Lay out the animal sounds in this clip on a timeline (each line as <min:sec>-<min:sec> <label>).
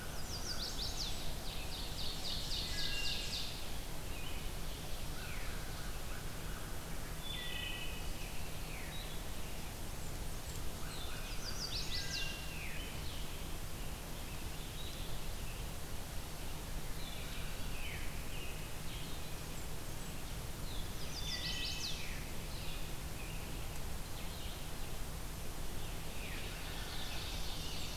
0:00.0-0:00.8 American Crow (Corvus brachyrhynchos)
0:00.0-0:01.4 Blackburnian Warbler (Setophaga fusca)
0:00.0-0:28.0 Blue-headed Vireo (Vireo solitarius)
0:00.0-0:01.2 Chestnut-sided Warbler (Setophaga pensylvanica)
0:01.2-0:03.8 Ovenbird (Seiurus aurocapilla)
0:02.6-0:03.4 Wood Thrush (Hylocichla mustelina)
0:03.2-0:04.5 American Robin (Turdus migratorius)
0:05.1-0:06.8 American Crow (Corvus brachyrhynchos)
0:05.2-0:05.7 Veery (Catharus fuscescens)
0:07.1-0:08.3 Wood Thrush (Hylocichla mustelina)
0:08.7-0:09.0 Veery (Catharus fuscescens)
0:09.8-0:11.2 Blackburnian Warbler (Setophaga fusca)
0:10.8-0:11.7 American Crow (Corvus brachyrhynchos)
0:11.1-0:12.5 Chestnut-sided Warbler (Setophaga pensylvanica)
0:11.7-0:12.6 Wood Thrush (Hylocichla mustelina)
0:12.4-0:12.8 Veery (Catharus fuscescens)
0:13.6-0:15.8 American Robin (Turdus migratorius)
0:17.1-0:19.2 American Robin (Turdus migratorius)
0:17.6-0:18.1 Veery (Catharus fuscescens)
0:19.3-0:20.4 Blackburnian Warbler (Setophaga fusca)
0:20.7-0:22.1 Chestnut-sided Warbler (Setophaga pensylvanica)
0:21.1-0:21.9 Wood Thrush (Hylocichla mustelina)
0:21.9-0:22.3 Veery (Catharus fuscescens)
0:26.0-0:26.5 Veery (Catharus fuscescens)
0:26.4-0:28.0 Ovenbird (Seiurus aurocapilla)
0:27.4-0:28.0 Blackburnian Warbler (Setophaga fusca)